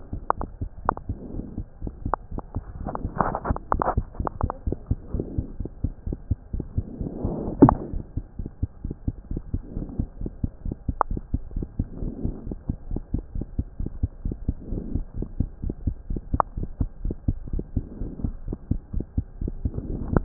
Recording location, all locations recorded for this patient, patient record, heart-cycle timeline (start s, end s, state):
pulmonary valve (PV)
aortic valve (AV)+pulmonary valve (PV)+tricuspid valve (TV)+mitral valve (MV)
#Age: Child
#Sex: Female
#Height: 119.0 cm
#Weight: 23.6 kg
#Pregnancy status: False
#Murmur: Absent
#Murmur locations: nan
#Most audible location: nan
#Systolic murmur timing: nan
#Systolic murmur shape: nan
#Systolic murmur grading: nan
#Systolic murmur pitch: nan
#Systolic murmur quality: nan
#Diastolic murmur timing: nan
#Diastolic murmur shape: nan
#Diastolic murmur grading: nan
#Diastolic murmur pitch: nan
#Diastolic murmur quality: nan
#Outcome: Normal
#Campaign: 2015 screening campaign
0.00	9.16	unannotated
9.16	9.32	diastole
9.32	9.42	S1
9.42	9.52	systole
9.52	9.61	S2
9.61	9.74	diastole
9.74	9.86	S1
9.86	9.98	systole
9.98	10.08	S2
10.08	10.20	diastole
10.20	10.30	S1
10.30	10.42	systole
10.42	10.50	S2
10.50	10.64	diastole
10.64	10.74	S1
10.74	10.87	systole
10.87	10.96	S2
10.96	11.10	diastole
11.10	11.20	S1
11.20	11.32	systole
11.32	11.42	S2
11.42	11.56	diastole
11.56	11.66	S1
11.66	11.78	systole
11.78	11.88	S2
11.88	12.02	diastole
12.02	12.14	S1
12.14	12.24	systole
12.24	12.36	S2
12.36	12.46	diastole
12.46	12.52	S1
12.52	12.68	systole
12.68	12.76	S2
12.76	12.90	diastole
12.90	13.02	S1
13.02	13.12	systole
13.12	13.22	S2
13.22	13.33	diastole
13.33	13.43	S1
13.43	13.57	systole
13.57	13.64	S2
13.64	13.78	diastole
13.78	13.88	S1
13.88	14.00	systole
14.00	14.08	S2
14.08	14.26	diastole
14.26	14.36	S1
14.36	14.46	systole
14.46	14.54	S2
14.54	14.69	diastole
14.69	14.79	S1
14.79	14.94	systole
14.94	15.04	S2
15.04	15.15	diastole
15.15	15.26	S1
15.26	15.38	systole
15.38	15.48	S2
15.48	15.60	diastole
15.60	15.74	S1
15.74	15.83	systole
15.83	15.93	S2
15.93	16.08	diastole
16.08	16.20	S1
16.20	16.32	systole
16.32	16.42	S2
16.42	16.58	diastole
16.58	16.68	S1
16.68	16.80	systole
16.80	16.88	S2
16.88	17.03	diastole
17.03	17.14	S1
17.14	17.24	systole
17.24	17.35	S2
17.35	17.52	diastole
17.52	17.62	S1
17.62	17.74	systole
17.74	17.84	S2
17.84	17.98	diastole
17.98	18.08	S1
18.08	18.21	systole
18.21	18.31	S2
18.31	18.47	diastole
18.47	18.55	S1
18.55	18.69	systole
18.69	18.78	S2
18.78	18.92	diastole
18.92	19.03	S1
19.03	19.14	systole
19.14	19.23	S2
19.23	19.38	diastole
19.38	20.24	unannotated